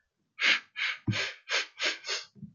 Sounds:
Sniff